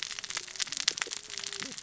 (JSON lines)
{"label": "biophony, cascading saw", "recorder": "SoundTrap 600 or HydroMoth"}